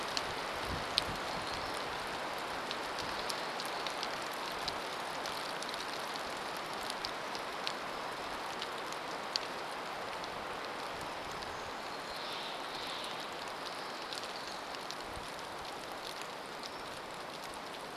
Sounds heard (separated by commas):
Steller's Jay call, warbler song, rain